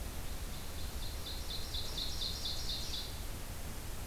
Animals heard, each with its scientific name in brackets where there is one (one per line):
Ovenbird (Seiurus aurocapilla)